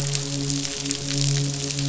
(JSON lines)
{"label": "biophony, midshipman", "recorder": "SoundTrap 500"}